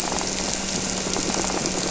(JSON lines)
{"label": "anthrophony, boat engine", "recorder": "SoundTrap 300"}
{"label": "biophony", "recorder": "SoundTrap 300"}